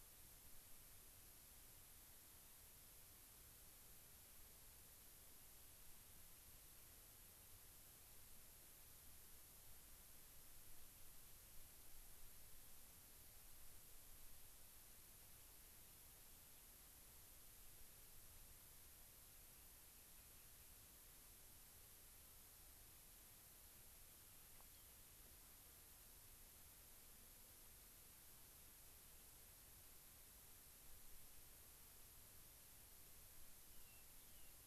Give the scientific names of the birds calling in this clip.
Salpinctes obsoletus